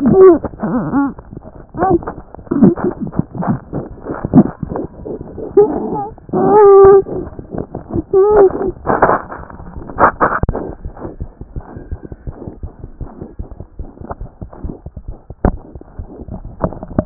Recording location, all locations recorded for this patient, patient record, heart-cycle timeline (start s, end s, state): pulmonary valve (PV)
pulmonary valve (PV)+mitral valve (MV)
#Age: Infant
#Sex: Male
#Height: 60.0 cm
#Weight: 12.2 kg
#Pregnancy status: False
#Murmur: Unknown
#Murmur locations: nan
#Most audible location: nan
#Systolic murmur timing: nan
#Systolic murmur shape: nan
#Systolic murmur grading: nan
#Systolic murmur pitch: nan
#Systolic murmur quality: nan
#Diastolic murmur timing: nan
#Diastolic murmur shape: nan
#Diastolic murmur grading: nan
#Diastolic murmur pitch: nan
#Diastolic murmur quality: nan
#Outcome: Abnormal
#Campaign: 2014 screening campaign
0.00	10.84	unannotated
10.84	10.92	S1
10.92	11.05	systole
11.05	11.11	S2
11.11	11.21	diastole
11.21	11.29	S1
11.29	11.41	systole
11.41	11.46	S2
11.46	11.56	diastole
11.56	11.65	S1
11.65	11.77	systole
11.77	11.82	S2
11.82	11.92	diastole
11.92	12.00	S1
12.00	12.12	systole
12.12	12.18	S2
12.18	12.28	diastole
12.28	12.36	S1
12.36	12.47	systole
12.47	12.53	S2
12.53	12.63	diastole
12.63	12.72	S1
12.72	12.84	systole
12.84	12.91	S2
12.91	13.01	diastole
13.01	17.06	unannotated